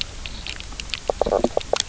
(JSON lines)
{"label": "biophony, knock croak", "recorder": "SoundTrap 300"}